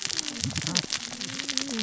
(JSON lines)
{"label": "biophony, cascading saw", "recorder": "SoundTrap 600 or HydroMoth"}